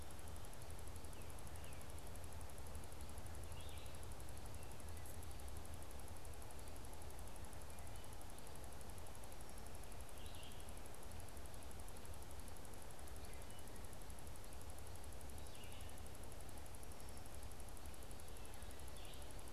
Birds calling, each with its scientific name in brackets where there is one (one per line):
Tufted Titmouse (Baeolophus bicolor)
Red-eyed Vireo (Vireo olivaceus)